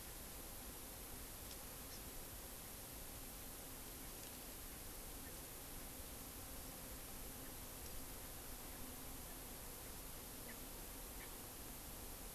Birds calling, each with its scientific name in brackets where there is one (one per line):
Hawaii Amakihi (Chlorodrepanis virens)
Erckel's Francolin (Pternistis erckelii)